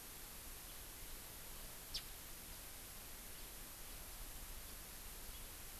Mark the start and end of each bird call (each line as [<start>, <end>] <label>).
[1.89, 1.99] House Finch (Haemorhous mexicanus)